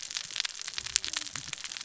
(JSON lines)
{"label": "biophony, cascading saw", "recorder": "SoundTrap 600 or HydroMoth"}